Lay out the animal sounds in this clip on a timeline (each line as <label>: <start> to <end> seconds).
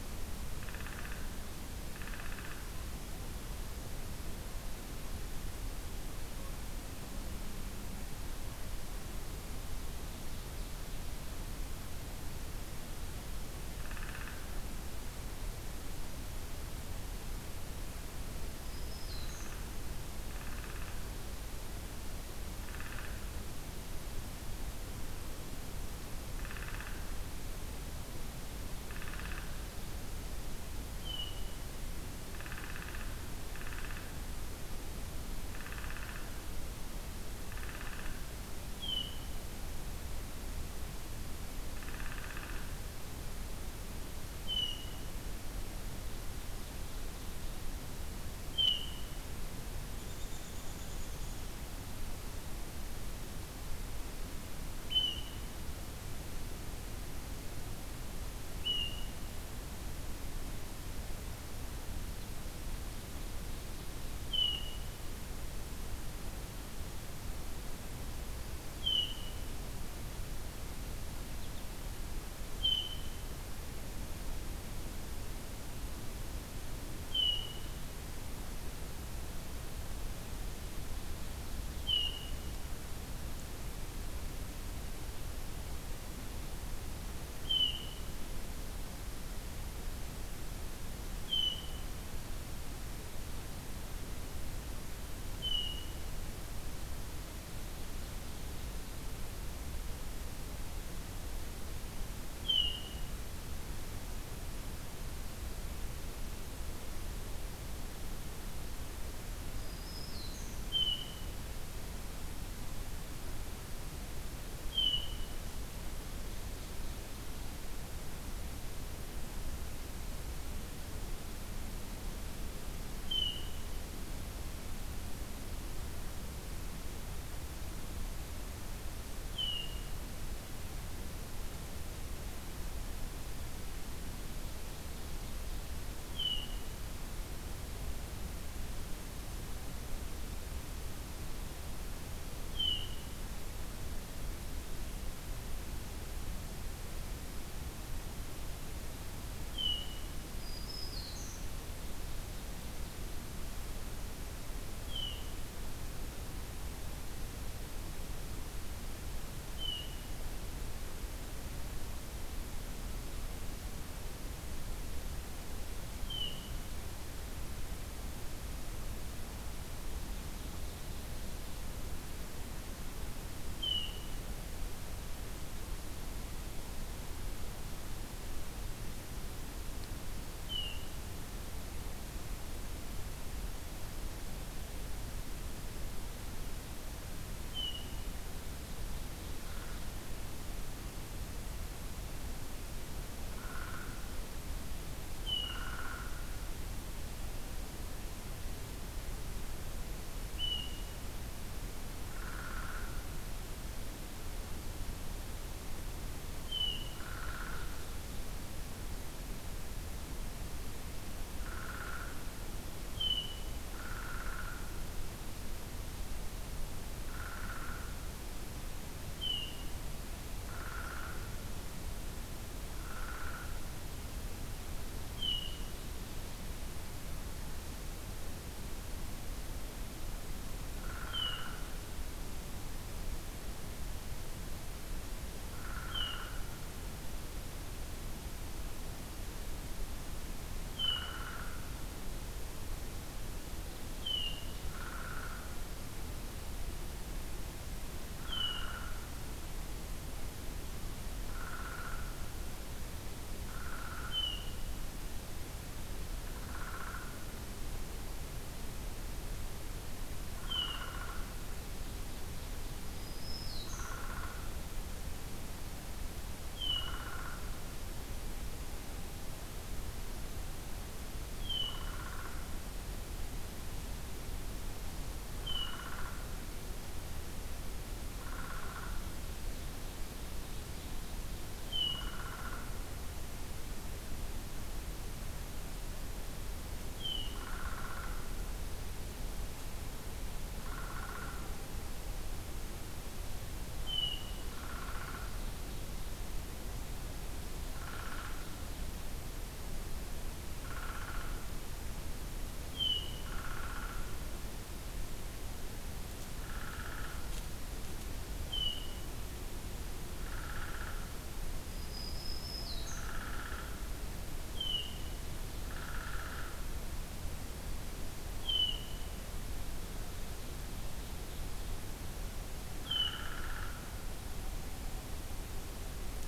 Downy Woodpecker (Dryobates pubescens): 0.6 to 1.3 seconds
Downy Woodpecker (Dryobates pubescens): 1.9 to 2.7 seconds
Downy Woodpecker (Dryobates pubescens): 13.8 to 14.4 seconds
Black-throated Green Warbler (Setophaga virens): 18.6 to 19.6 seconds
Downy Woodpecker (Dryobates pubescens): 19.0 to 19.7 seconds
Downy Woodpecker (Dryobates pubescens): 20.3 to 21.0 seconds
Downy Woodpecker (Dryobates pubescens): 22.6 to 23.2 seconds
Downy Woodpecker (Dryobates pubescens): 26.3 to 27.1 seconds
Downy Woodpecker (Dryobates pubescens): 28.9 to 29.5 seconds
Hermit Thrush (Catharus guttatus): 31.0 to 31.6 seconds
Downy Woodpecker (Dryobates pubescens): 32.3 to 33.1 seconds
Downy Woodpecker (Dryobates pubescens): 33.5 to 34.2 seconds
Downy Woodpecker (Dryobates pubescens): 35.5 to 36.3 seconds
Downy Woodpecker (Dryobates pubescens): 37.4 to 38.2 seconds
Hermit Thrush (Catharus guttatus): 38.8 to 39.3 seconds
Downy Woodpecker (Dryobates pubescens): 41.7 to 42.7 seconds
Hermit Thrush (Catharus guttatus): 44.5 to 45.0 seconds
Hermit Thrush (Catharus guttatus): 48.5 to 49.1 seconds
American Robin (Turdus migratorius): 50.0 to 51.6 seconds
Hermit Thrush (Catharus guttatus): 54.9 to 55.5 seconds
Hermit Thrush (Catharus guttatus): 58.6 to 59.2 seconds
Hermit Thrush (Catharus guttatus): 64.3 to 64.9 seconds
Hermit Thrush (Catharus guttatus): 68.8 to 69.4 seconds
American Goldfinch (Spinus tristis): 71.3 to 71.7 seconds
Hermit Thrush (Catharus guttatus): 72.6 to 73.3 seconds
Hermit Thrush (Catharus guttatus): 77.0 to 77.7 seconds
Hermit Thrush (Catharus guttatus): 81.8 to 82.7 seconds
Hermit Thrush (Catharus guttatus): 87.4 to 88.1 seconds
Hermit Thrush (Catharus guttatus): 91.3 to 91.9 seconds
Hermit Thrush (Catharus guttatus): 95.4 to 96.1 seconds
Hermit Thrush (Catharus guttatus): 102.4 to 103.1 seconds
Black-throated Green Warbler (Setophaga virens): 109.6 to 110.6 seconds
Hermit Thrush (Catharus guttatus): 110.7 to 111.4 seconds
Hermit Thrush (Catharus guttatus): 114.7 to 115.4 seconds
Hermit Thrush (Catharus guttatus): 123.1 to 123.7 seconds
Hermit Thrush (Catharus guttatus): 129.3 to 130.0 seconds
Hermit Thrush (Catharus guttatus): 136.1 to 136.7 seconds
Hermit Thrush (Catharus guttatus): 142.5 to 143.2 seconds
Hermit Thrush (Catharus guttatus): 149.5 to 150.2 seconds
Black-throated Green Warbler (Setophaga virens): 150.4 to 151.5 seconds
Hermit Thrush (Catharus guttatus): 154.8 to 155.4 seconds
Hermit Thrush (Catharus guttatus): 159.5 to 160.1 seconds
Hermit Thrush (Catharus guttatus): 166.0 to 166.6 seconds
Hermit Thrush (Catharus guttatus): 173.6 to 174.2 seconds
Hermit Thrush (Catharus guttatus): 180.4 to 181.0 seconds
Hermit Thrush (Catharus guttatus): 187.5 to 188.1 seconds
Ovenbird (Seiurus aurocapilla): 188.4 to 189.9 seconds
Downy Woodpecker (Dryobates pubescens): 189.3 to 189.8 seconds
Downy Woodpecker (Dryobates pubescens): 193.3 to 194.1 seconds
Hermit Thrush (Catharus guttatus): 195.2 to 195.8 seconds
Downy Woodpecker (Dryobates pubescens): 195.4 to 196.4 seconds
Hermit Thrush (Catharus guttatus): 200.3 to 201.0 seconds
Downy Woodpecker (Dryobates pubescens): 202.2 to 203.1 seconds
Hermit Thrush (Catharus guttatus): 206.4 to 207.1 seconds
Downy Woodpecker (Dryobates pubescens): 207.0 to 207.8 seconds
Downy Woodpecker (Dryobates pubescens): 211.4 to 212.2 seconds
Hermit Thrush (Catharus guttatus): 213.0 to 213.6 seconds
Downy Woodpecker (Dryobates pubescens): 213.7 to 214.7 seconds
Downy Woodpecker (Dryobates pubescens): 217.0 to 217.9 seconds
Hermit Thrush (Catharus guttatus): 219.2 to 219.8 seconds
Downy Woodpecker (Dryobates pubescens): 220.4 to 221.3 seconds
Downy Woodpecker (Dryobates pubescens): 222.8 to 223.6 seconds
Hermit Thrush (Catharus guttatus): 225.1 to 225.7 seconds
Downy Woodpecker (Dryobates pubescens): 230.8 to 231.7 seconds
Hermit Thrush (Catharus guttatus): 231.0 to 231.7 seconds
Downy Woodpecker (Dryobates pubescens): 235.5 to 236.4 seconds
Hermit Thrush (Catharus guttatus): 235.9 to 236.4 seconds
Hermit Thrush (Catharus guttatus): 240.7 to 241.4 seconds
Downy Woodpecker (Dryobates pubescens): 240.8 to 241.5 seconds
Hermit Thrush (Catharus guttatus): 244.0 to 244.6 seconds
Downy Woodpecker (Dryobates pubescens): 244.7 to 245.5 seconds
Downy Woodpecker (Dryobates pubescens): 248.2 to 249.0 seconds
Hermit Thrush (Catharus guttatus): 248.2 to 248.9 seconds
Downy Woodpecker (Dryobates pubescens): 251.3 to 252.0 seconds
Downy Woodpecker (Dryobates pubescens): 253.5 to 254.3 seconds
Hermit Thrush (Catharus guttatus): 254.1 to 254.7 seconds
Downy Woodpecker (Dryobates pubescens): 256.4 to 257.2 seconds
Downy Woodpecker (Dryobates pubescens): 260.4 to 261.1 seconds
Hermit Thrush (Catharus guttatus): 260.5 to 261.0 seconds
Black-throated Green Warbler (Setophaga virens): 262.9 to 264.0 seconds
Downy Woodpecker (Dryobates pubescens): 263.7 to 264.5 seconds
Hermit Thrush (Catharus guttatus): 266.5 to 267.2 seconds
Downy Woodpecker (Dryobates pubescens): 266.7 to 267.4 seconds
Hermit Thrush (Catharus guttatus): 271.4 to 272.0 seconds
Downy Woodpecker (Dryobates pubescens): 271.7 to 272.5 seconds
Hermit Thrush (Catharus guttatus): 275.4 to 275.9 seconds
Downy Woodpecker (Dryobates pubescens): 275.5 to 276.1 seconds
Downy Woodpecker (Dryobates pubescens): 278.2 to 279.0 seconds
Hermit Thrush (Catharus guttatus): 281.7 to 282.3 seconds
Downy Woodpecker (Dryobates pubescens): 282.0 to 282.7 seconds
Hermit Thrush (Catharus guttatus): 287.0 to 287.6 seconds
Downy Woodpecker (Dryobates pubescens): 287.3 to 288.2 seconds
Downy Woodpecker (Dryobates pubescens): 290.6 to 291.4 seconds
Hermit Thrush (Catharus guttatus): 293.8 to 294.5 seconds
Downy Woodpecker (Dryobates pubescens): 294.5 to 295.3 seconds
Ovenbird (Seiurus aurocapilla): 294.6 to 296.2 seconds
Downy Woodpecker (Dryobates pubescens): 297.7 to 298.5 seconds
Downy Woodpecker (Dryobates pubescens): 300.6 to 301.3 seconds
Hermit Thrush (Catharus guttatus): 302.7 to 303.3 seconds
Downy Woodpecker (Dryobates pubescens): 303.3 to 304.0 seconds
Downy Woodpecker (Dryobates pubescens): 306.4 to 307.2 seconds
Hermit Thrush (Catharus guttatus): 308.5 to 309.0 seconds
Downy Woodpecker (Dryobates pubescens): 310.2 to 311.1 seconds
Black-throated Green Warbler (Setophaga virens): 311.7 to 313.1 seconds
Downy Woodpecker (Dryobates pubescens): 312.8 to 313.7 seconds
Hermit Thrush (Catharus guttatus): 314.5 to 315.2 seconds
Downy Woodpecker (Dryobates pubescens): 315.7 to 316.6 seconds
Hermit Thrush (Catharus guttatus): 318.4 to 319.1 seconds
Ovenbird (Seiurus aurocapilla): 320.2 to 321.9 seconds
Hermit Thrush (Catharus guttatus): 322.8 to 323.3 seconds
Downy Woodpecker (Dryobates pubescens): 322.8 to 323.7 seconds